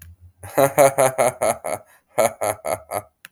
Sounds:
Laughter